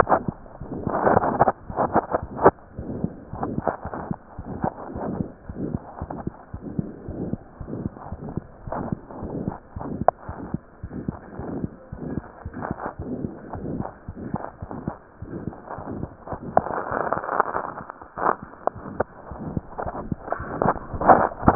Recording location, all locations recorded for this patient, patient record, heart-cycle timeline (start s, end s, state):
pulmonary valve (PV)
aortic valve (AV)+pulmonary valve (PV)+tricuspid valve (TV)+mitral valve (MV)
#Age: Child
#Sex: Female
#Height: 96.0 cm
#Weight: 16.0 kg
#Pregnancy status: False
#Murmur: Present
#Murmur locations: aortic valve (AV)+mitral valve (MV)+pulmonary valve (PV)+tricuspid valve (TV)
#Most audible location: aortic valve (AV)
#Systolic murmur timing: Mid-systolic
#Systolic murmur shape: Diamond
#Systolic murmur grading: III/VI or higher
#Systolic murmur pitch: Medium
#Systolic murmur quality: Harsh
#Diastolic murmur timing: nan
#Diastolic murmur shape: nan
#Diastolic murmur grading: nan
#Diastolic murmur pitch: nan
#Diastolic murmur quality: nan
#Outcome: Abnormal
#Campaign: 2015 screening campaign
0.00	7.06	unannotated
7.06	7.15	S1
7.15	7.31	systole
7.31	7.37	S2
7.37	7.59	diastole
7.59	7.66	S1
7.66	7.84	systole
7.84	7.91	S2
7.91	8.10	diastole
8.10	8.18	S1
8.18	8.32	systole
8.32	8.42	S2
8.42	8.66	diastole
8.66	8.74	S1
8.74	8.89	systole
8.89	8.97	S2
8.97	9.21	diastole
9.21	9.32	S1
9.32	9.45	systole
9.45	9.54	S2
9.54	9.74	diastole
9.74	9.83	S1
9.83	9.98	systole
9.98	10.08	S2
10.08	10.28	diastole
10.28	10.40	S1
10.40	10.52	systole
10.52	10.59	S2
10.59	10.82	diastole
10.82	10.88	S1
10.88	11.06	systole
11.06	11.13	S2
11.13	11.38	diastole
11.38	11.44	S1
11.44	11.62	systole
11.62	11.70	S2
11.70	11.91	diastole
11.91	11.99	S1
11.99	12.15	systole
12.15	12.23	S2
12.23	12.45	diastole
12.45	12.52	S1
12.52	12.68	systole
12.68	12.78	S2
12.78	12.98	diastole
12.98	13.07	S1
13.07	13.22	systole
13.22	13.32	S2
13.32	13.51	diastole
13.51	13.61	S1
13.61	13.78	systole
13.78	13.85	S2
13.85	14.05	diastole
14.05	14.15	S1
14.15	14.32	systole
14.32	14.41	S2
14.41	14.61	diastole
14.61	14.72	S1
14.72	14.84	systole
14.84	14.94	S2
14.94	15.19	diastole
15.19	15.32	S1
15.32	15.44	systole
15.44	15.58	S2
15.58	15.71	diastole
15.71	21.55	unannotated